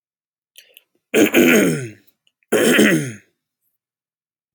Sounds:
Throat clearing